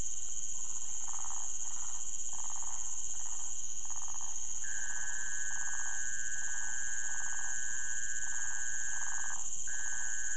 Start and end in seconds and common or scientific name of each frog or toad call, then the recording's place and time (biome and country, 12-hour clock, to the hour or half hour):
0.5	10.3	waxy monkey tree frog
Cerrado, Brazil, 4am